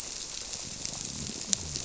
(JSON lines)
{"label": "biophony", "recorder": "SoundTrap 300"}